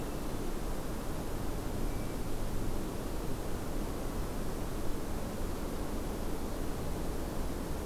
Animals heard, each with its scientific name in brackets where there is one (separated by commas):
Hermit Thrush (Catharus guttatus)